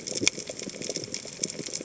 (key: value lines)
label: biophony, chatter
recorder: HydroMoth